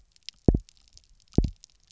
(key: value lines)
label: biophony, double pulse
recorder: SoundTrap 300